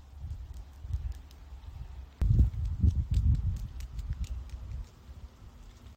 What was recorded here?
Trimerotropis verruculata, an orthopteran